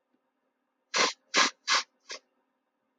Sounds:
Sniff